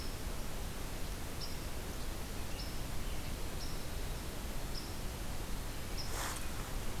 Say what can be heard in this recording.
forest ambience